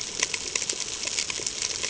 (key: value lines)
label: ambient
recorder: HydroMoth